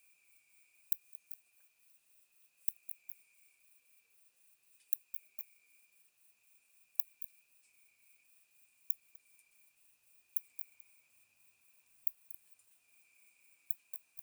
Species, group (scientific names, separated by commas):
Leptophyes laticauda, Orthoptera